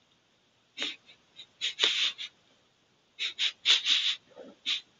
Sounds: Sniff